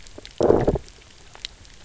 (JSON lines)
{"label": "biophony, low growl", "recorder": "SoundTrap 300"}